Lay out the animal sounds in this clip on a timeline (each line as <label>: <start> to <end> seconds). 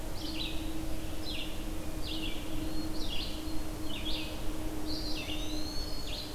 Red-eyed Vireo (Vireo olivaceus): 0.1 to 6.3 seconds
Hermit Thrush (Catharus guttatus): 2.5 to 3.9 seconds
Eastern Wood-Pewee (Contopus virens): 4.8 to 6.2 seconds
Black-throated Green Warbler (Setophaga virens): 4.8 to 6.3 seconds